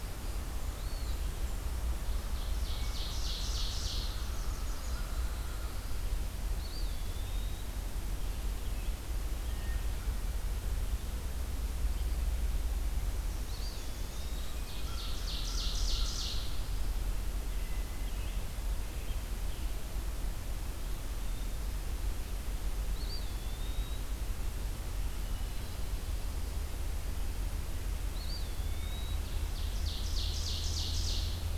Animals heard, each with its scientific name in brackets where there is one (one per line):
Blackburnian Warbler (Setophaga fusca)
Northern Parula (Setophaga americana)
Ovenbird (Seiurus aurocapilla)
Eastern Wood-Pewee (Contopus virens)
American Robin (Turdus migratorius)
Common Raven (Corvus corax)
Black-throated Blue Warbler (Setophaga caerulescens)
Hermit Thrush (Catharus guttatus)